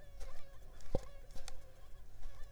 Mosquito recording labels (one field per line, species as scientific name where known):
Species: Culex pipiens complex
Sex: female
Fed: unfed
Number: one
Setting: cup